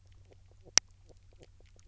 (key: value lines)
label: biophony
recorder: SoundTrap 300